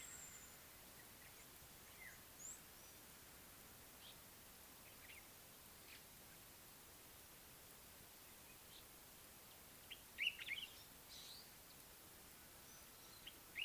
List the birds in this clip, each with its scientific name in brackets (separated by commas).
African Black-headed Oriole (Oriolus larvatus), Common Bulbul (Pycnonotus barbatus), Meyer's Parrot (Poicephalus meyeri)